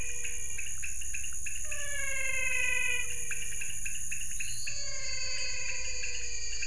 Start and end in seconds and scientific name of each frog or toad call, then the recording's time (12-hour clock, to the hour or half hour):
0.0	6.6	Leptodactylus podicipinus
0.0	6.6	Physalaemus albonotatus
4.3	6.6	Elachistocleis matogrosso
6:30pm